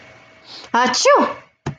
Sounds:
Sneeze